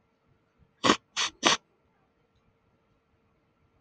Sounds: Sniff